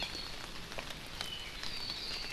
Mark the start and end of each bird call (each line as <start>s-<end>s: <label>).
0.0s-0.1s: Hawaii Amakihi (Chlorodrepanis virens)
1.2s-2.3s: Apapane (Himatione sanguinea)